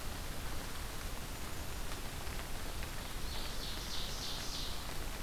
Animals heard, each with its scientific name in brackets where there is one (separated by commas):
Ovenbird (Seiurus aurocapilla)